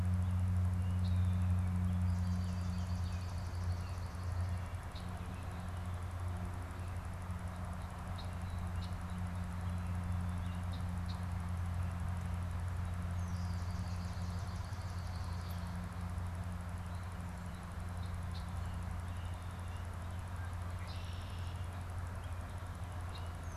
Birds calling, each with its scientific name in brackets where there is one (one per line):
Red-winged Blackbird (Agelaius phoeniceus)
Swamp Sparrow (Melospiza georgiana)